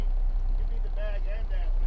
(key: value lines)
label: anthrophony, boat engine
recorder: SoundTrap 300